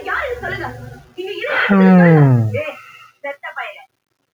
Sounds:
Sigh